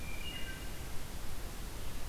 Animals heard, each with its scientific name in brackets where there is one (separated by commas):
Wood Thrush (Hylocichla mustelina)